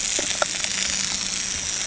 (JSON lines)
{"label": "anthrophony, boat engine", "recorder": "HydroMoth"}